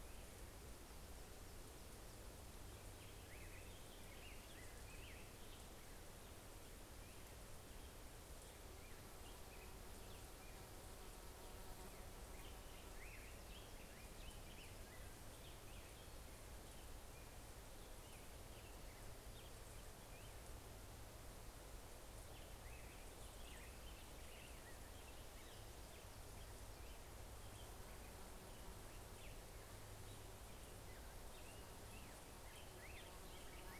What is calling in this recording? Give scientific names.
Pheucticus melanocephalus